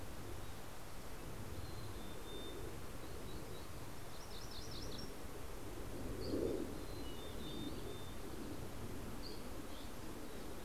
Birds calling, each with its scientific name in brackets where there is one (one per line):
Dusky Flycatcher (Empidonax oberholseri)
MacGillivray's Warbler (Geothlypis tolmiei)
Mountain Chickadee (Poecile gambeli)